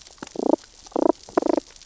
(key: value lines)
label: biophony, damselfish
recorder: SoundTrap 600 or HydroMoth